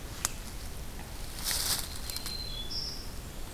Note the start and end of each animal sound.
0.0s-3.5s: Red-eyed Vireo (Vireo olivaceus)
1.7s-3.3s: Black-throated Green Warbler (Setophaga virens)

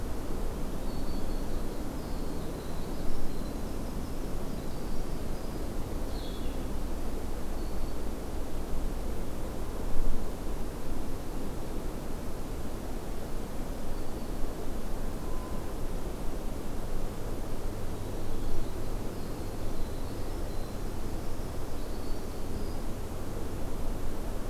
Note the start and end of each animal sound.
0.7s-5.7s: Winter Wren (Troglodytes hiemalis)
0.8s-1.6s: Black-throated Green Warbler (Setophaga virens)
5.9s-6.9s: Blue-headed Vireo (Vireo solitarius)
7.2s-8.3s: Black-throated Green Warbler (Setophaga virens)
13.7s-14.6s: Black-throated Green Warbler (Setophaga virens)
17.8s-23.0s: Winter Wren (Troglodytes hiemalis)

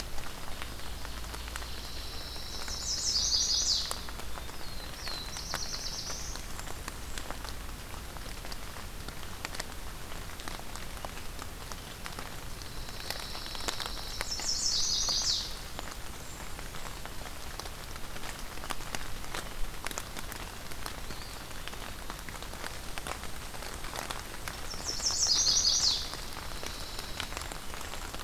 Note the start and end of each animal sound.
0.0s-1.7s: Ovenbird (Seiurus aurocapilla)
1.3s-3.0s: Pine Warbler (Setophaga pinus)
2.7s-4.1s: Chestnut-sided Warbler (Setophaga pensylvanica)
3.8s-4.7s: Eastern Wood-Pewee (Contopus virens)
4.3s-6.4s: Black-throated Blue Warbler (Setophaga caerulescens)
6.0s-7.4s: Blackburnian Warbler (Setophaga fusca)
12.5s-14.5s: Pine Warbler (Setophaga pinus)
14.2s-15.5s: Chestnut-sided Warbler (Setophaga pensylvanica)
15.4s-17.2s: Blackburnian Warbler (Setophaga fusca)
20.8s-22.1s: Eastern Wood-Pewee (Contopus virens)
24.5s-26.1s: Chestnut-sided Warbler (Setophaga pensylvanica)
25.8s-27.4s: Pine Warbler (Setophaga pinus)
26.5s-28.2s: Blackburnian Warbler (Setophaga fusca)

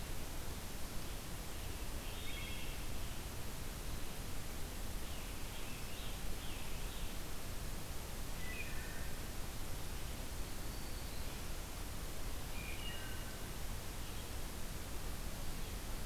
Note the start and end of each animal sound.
1.9s-2.8s: Wood Thrush (Hylocichla mustelina)
5.0s-7.3s: Scarlet Tanager (Piranga olivacea)
8.2s-9.1s: Wood Thrush (Hylocichla mustelina)
10.3s-11.5s: Black-throated Green Warbler (Setophaga virens)
12.5s-13.6s: Wood Thrush (Hylocichla mustelina)

